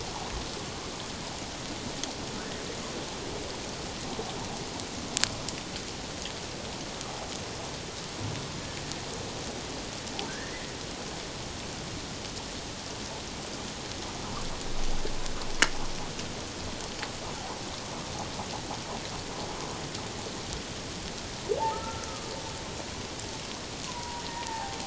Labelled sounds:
10.3	10.6	humpback whale, 1.5 to 2.1 kHz
21.6	22.3	humpback whale, 0.81 to 1.4 kHz
23.9	24.8	humpback whale, 0.78 to 1.9 kHz

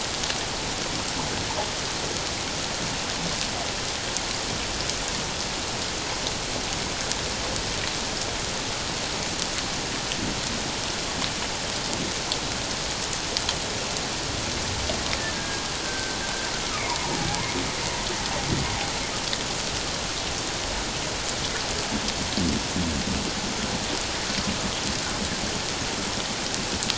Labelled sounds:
15.3	16.5	humpback whale, 1.5 to 1.7 kHz

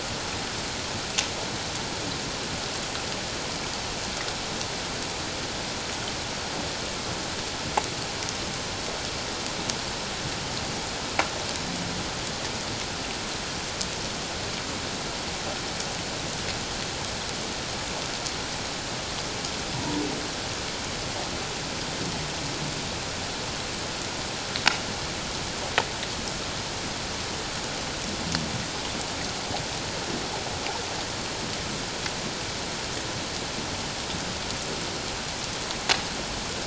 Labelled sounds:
19.7	20.0	humpback whale, 0.88 to 1.0 kHz

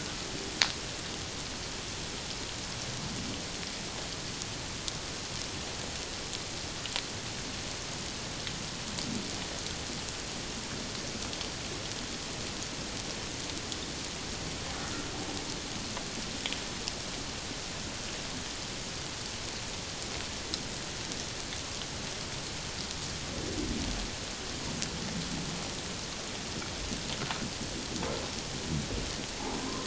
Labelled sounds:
29.4	29.8	humpback whale, 0.78 to 1.3 kHz

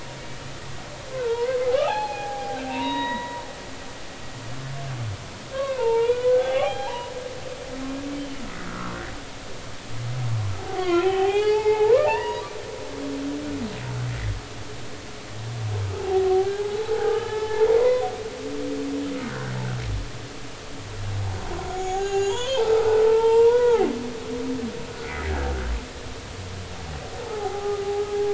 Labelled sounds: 1.1	3.4	humpback whale, 0.80 to 4.3 kHz
5.5	7.1	humpback whale, 0.80 to 3.5 kHz
8.2	9.0	humpback whale, 1.0 to 3.2 kHz
10.6	12.5	humpback whale, 0.80 to 4.9 kHz
15.9	18.1	humpback whale, 0.80 to 2.1 kHz
19.2	19.5	humpback whale, 1.3 to 1.9 kHz
21.7	23.9	humpback whale, 0.80 to 7.2 kHz
25.0	25.5	humpback whale, 1.5 to 2.4 kHz
27.2	27.8	humpback whale, 0.80 to 1.3 kHz

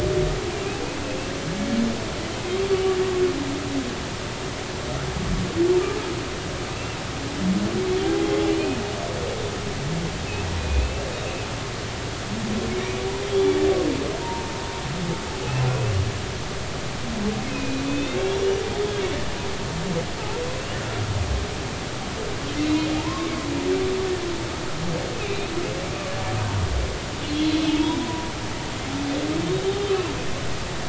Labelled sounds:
6.7	7.0	humpback whale, 2.6 to 2.8 kHz
8.4	8.8	humpback whale, 2.4 to 3.2 kHz
10.6	11.1	humpback whale, 2.4 to 2.8 kHz
12.7	13.0	humpback whale, 2.1 to 2.5 kHz
14.2	14.5	humpback whale, 0.86 to 0.99 kHz
15.7	15.9	humpback whale, 2.5 to 2.7 kHz
17.5	18.4	humpback whale, 2.4 to 3.8 kHz
22.6	23.5	humpback whale, 0.80 to 2.2 kHz
25.2	25.5	humpback whale, 2.3 to 2.7 kHz
27.6	28.3	humpback whale, 0.90 to 3.8 kHz

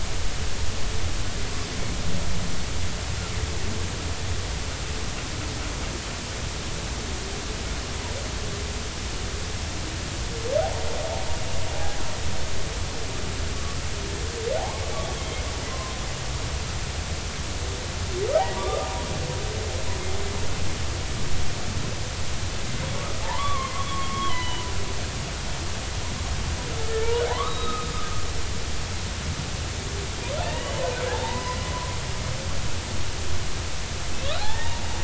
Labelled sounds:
10.6	10.9	humpback whale, 0.80 to 0.99 kHz
11.7	12.0	humpback whale, 0.80 to 0.86 kHz
14.6	15.4	humpback whale, 0.80 to 3.4 kHz
15.7	16.0	humpback whale, 0.96 to 1.1 kHz
18.6	18.9	humpback whale, 1.1 to 1.3 kHz
23.2	24.7	humpback whale, 0.83 to 3.4 kHz
26.9	27.9	humpback whale, 0.80 to 4.0 kHz
30.4	31.6	humpback whale, 0.83 to 3.0 kHz
34.2	34.8	humpback whale, 0.80 to 4.3 kHz

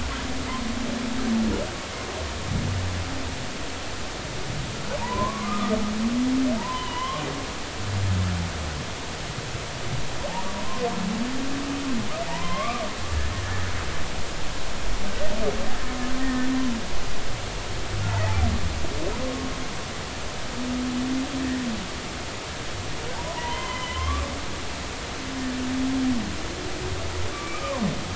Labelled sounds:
5.0	7.2	humpback whale, 0.80 to 3.3 kHz
12.3	12.8	humpback whale, 0.80 to 3.3 kHz
16.2	16.5	humpback whale, 1.7 to 1.9 kHz
18.1	18.3	humpback whale, 1.8 to 2.1 kHz
23.1	24.3	humpback whale, 0.83 to 3.2 kHz
27.3	27.8	humpback whale, 0.90 to 2.6 kHz

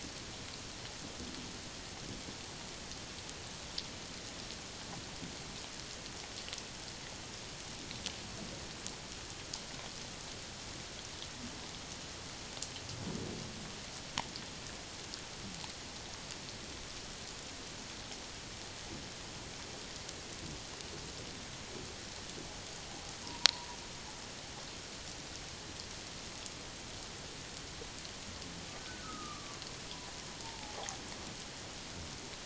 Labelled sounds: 23.2	23.7	humpback whale, 0.88 to 1.0 kHz
28.8	29.6	humpback whale, 1.1 to 1.6 kHz
30.4	30.8	humpback whale, 0.78 to 0.97 kHz

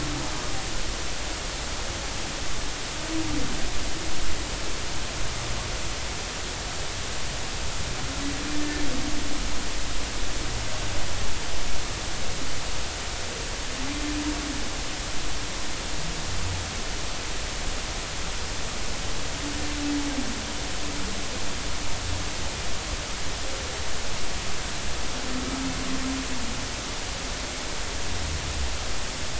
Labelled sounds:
8.5	8.8	humpback whale, 1.7 to 1.8 kHz

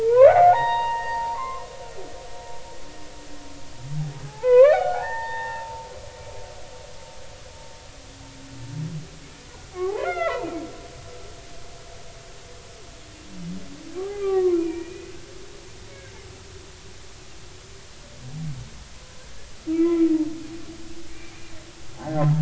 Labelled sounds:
0.0	1.6	humpback whale, 0.80 to 4.7 kHz
4.2	5.9	humpback whale, 0.80 to 3.8 kHz
9.8	10.5	humpback whale, 0.80 to 2.9 kHz
14.0	15.1	humpback whale, 0.99 to 2.6 kHz
19.7	20.0	humpback whale, 1.2 to 2.8 kHz
21.1	21.5	humpback whale, 2.3 to 2.5 kHz
22.0	22.2	humpback whale, 0.80 to 0.93 kHz

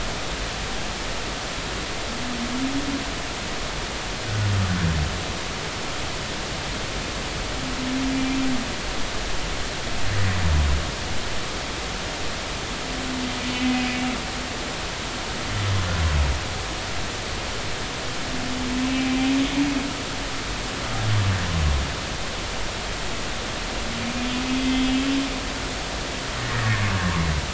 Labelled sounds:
13.5	13.9	humpback whale, 2.0 to 2.6 kHz
24.6	24.9	humpback whale, 2.0 to 2.1 kHz
26.4	26.8	humpback whale, 1.6 to 2.0 kHz

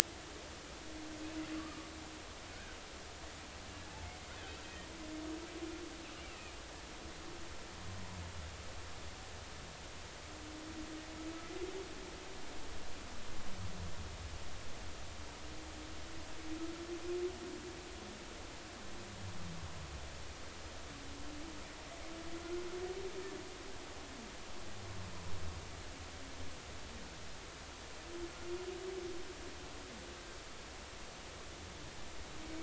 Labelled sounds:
2.5	2.8	killer whale, Bigg's (transient), 1.4 to 1.7 kHz
4.6	4.9	killer whale, Bigg's (transient), 1.8 to 1.9 kHz
6.3	6.5	killer whale, Bigg's (transient), 2.3 to 2.8 kHz

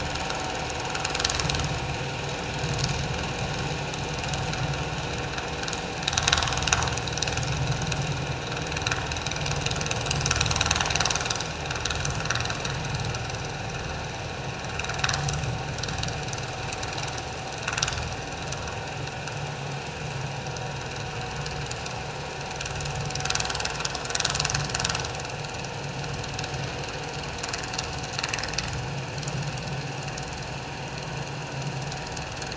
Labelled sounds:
0.8	1.6	vessel noise, 1.1 to 1.3 kHz
6.2	6.6	vessel noise, 0.91 to 1.3 kHz

